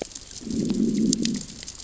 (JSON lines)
{"label": "biophony, growl", "recorder": "SoundTrap 600 or HydroMoth"}